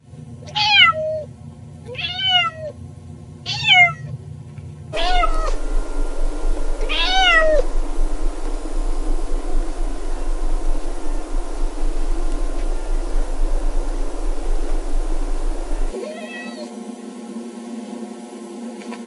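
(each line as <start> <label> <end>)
0.0 A constant humming is heard in the background. 19.1
0.4 A cat purring repetitively. 7.6
4.9 A vacuum cleaner runs in a steady pattern. 15.9
16.1 A cat meows. 17.0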